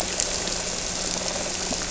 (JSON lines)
{"label": "anthrophony, boat engine", "recorder": "SoundTrap 300"}